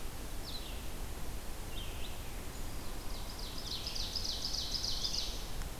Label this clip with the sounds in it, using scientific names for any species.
Vireo olivaceus, Seiurus aurocapilla